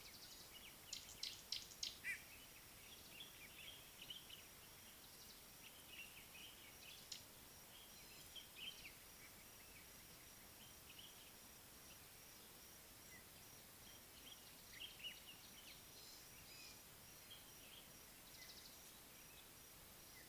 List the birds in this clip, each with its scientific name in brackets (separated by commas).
Gray-backed Camaroptera (Camaroptera brevicaudata), White-bellied Go-away-bird (Corythaixoides leucogaster), Common Bulbul (Pycnonotus barbatus)